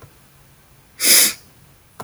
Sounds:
Sniff